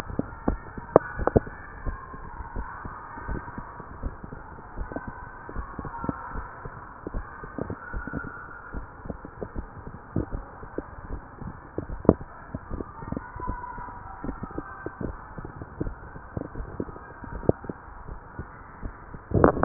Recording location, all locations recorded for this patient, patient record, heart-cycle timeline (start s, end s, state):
tricuspid valve (TV)
aortic valve (AV)+pulmonary valve (PV)+tricuspid valve (TV)
#Age: nan
#Sex: Female
#Height: nan
#Weight: nan
#Pregnancy status: True
#Murmur: Absent
#Murmur locations: nan
#Most audible location: nan
#Systolic murmur timing: nan
#Systolic murmur shape: nan
#Systolic murmur grading: nan
#Systolic murmur pitch: nan
#Systolic murmur quality: nan
#Diastolic murmur timing: nan
#Diastolic murmur shape: nan
#Diastolic murmur grading: nan
#Diastolic murmur pitch: nan
#Diastolic murmur quality: nan
#Outcome: Normal
#Campaign: 2015 screening campaign
0.00	2.42	unannotated
2.42	2.51	diastole
2.51	2.68	S1
2.68	2.80	systole
2.80	2.93	S2
2.93	3.24	diastole
3.24	3.42	S1
3.42	3.51	systole
3.51	3.65	S2
3.65	3.98	diastole
3.98	4.15	S1
4.15	4.26	systole
4.26	4.41	S2
4.41	4.76	diastole
4.76	4.92	S1
4.92	5.06	systole
5.06	5.16	S2
5.16	5.52	diastole
5.52	5.65	S1
5.65	5.76	systole
5.76	5.89	S2
5.89	6.30	diastole
6.30	6.47	S1
6.47	6.62	systole
6.62	6.72	S2
6.72	7.11	diastole
7.11	7.27	S1
7.27	7.39	systole
7.39	7.51	S2
7.51	7.91	diastole
7.91	8.04	S1
8.04	8.14	systole
8.14	8.26	S2
8.26	8.74	diastole
8.74	19.65	unannotated